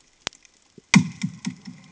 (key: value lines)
label: anthrophony, bomb
recorder: HydroMoth